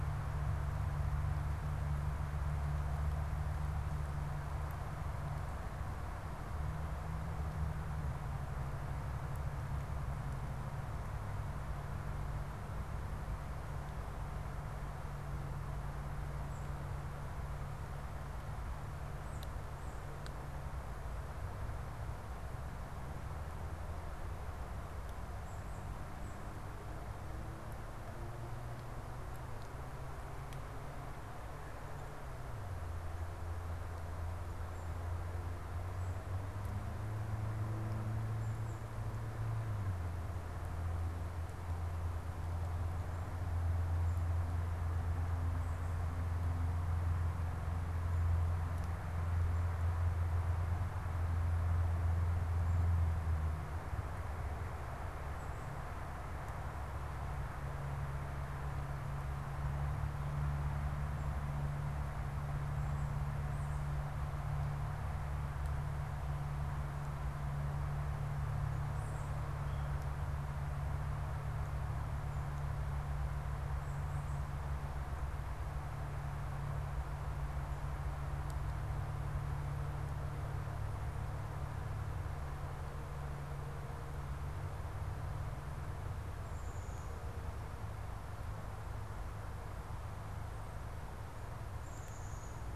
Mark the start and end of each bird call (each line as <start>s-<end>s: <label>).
19.0s-20.0s: Tufted Titmouse (Baeolophus bicolor)
68.8s-69.4s: Tufted Titmouse (Baeolophus bicolor)
86.2s-87.4s: Black-capped Chickadee (Poecile atricapillus)
91.6s-92.7s: Black-capped Chickadee (Poecile atricapillus)